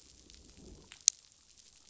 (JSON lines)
{"label": "biophony, growl", "recorder": "SoundTrap 500"}